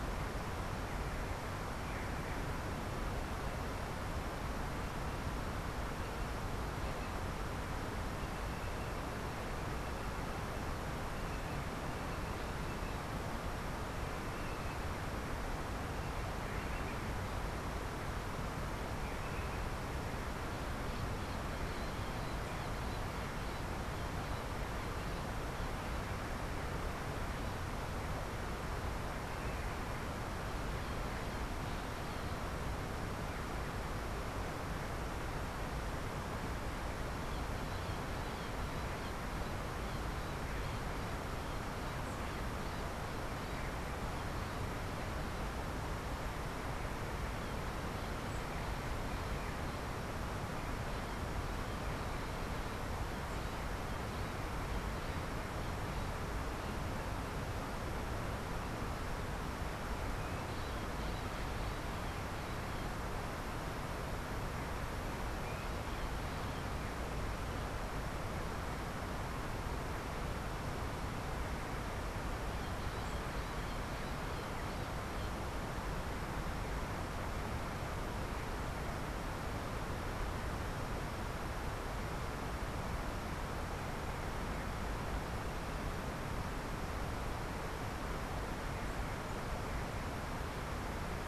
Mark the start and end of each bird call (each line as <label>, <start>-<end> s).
Bronze-winged Parrot (Pionus chalcopterus), 72.3-75.5 s